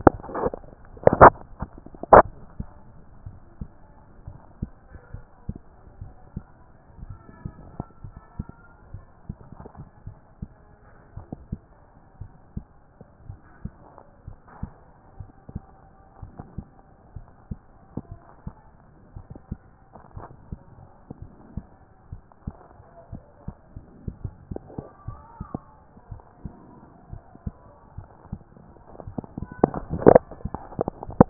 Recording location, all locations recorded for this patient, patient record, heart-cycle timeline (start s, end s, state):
mitral valve (MV)
aortic valve (AV)+pulmonary valve (PV)+tricuspid valve (TV)+mitral valve (MV)
#Age: Adolescent
#Sex: Male
#Height: 155.0 cm
#Weight: 47.1 kg
#Pregnancy status: False
#Murmur: Absent
#Murmur locations: nan
#Most audible location: nan
#Systolic murmur timing: nan
#Systolic murmur shape: nan
#Systolic murmur grading: nan
#Systolic murmur pitch: nan
#Systolic murmur quality: nan
#Diastolic murmur timing: nan
#Diastolic murmur shape: nan
#Diastolic murmur grading: nan
#Diastolic murmur pitch: nan
#Diastolic murmur quality: nan
#Outcome: Abnormal
#Campaign: 2014 screening campaign
0.00	2.79	unannotated
2.79	3.26	diastole
3.26	3.38	S1
3.38	3.60	systole
3.60	3.70	S2
3.70	4.24	diastole
4.24	4.37	S1
4.37	4.60	systole
4.60	4.72	S2
4.72	5.12	diastole
5.12	5.24	S1
5.24	5.46	systole
5.46	5.56	S2
5.56	6.00	diastole
6.00	6.12	S1
6.12	6.34	systole
6.34	6.44	S2
6.44	7.02	diastole
7.02	7.16	S1
7.16	7.42	systole
7.42	7.52	S2
7.52	8.04	diastole
8.04	8.16	S1
8.16	8.38	systole
8.38	8.48	S2
8.48	8.92	diastole
8.92	9.04	S1
9.04	9.28	systole
9.28	9.38	S2
9.38	9.81	diastole
9.81	31.30	unannotated